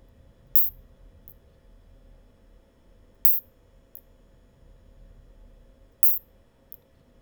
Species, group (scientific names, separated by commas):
Isophya rhodopensis, Orthoptera